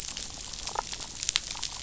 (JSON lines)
{"label": "biophony, damselfish", "recorder": "SoundTrap 500"}